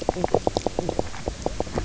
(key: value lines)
label: biophony, knock croak
recorder: SoundTrap 300